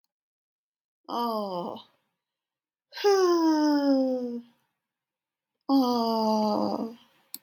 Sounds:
Sigh